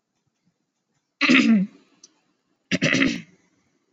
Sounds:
Throat clearing